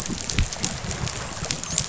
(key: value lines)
label: biophony, dolphin
recorder: SoundTrap 500